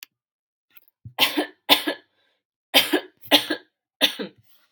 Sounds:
Cough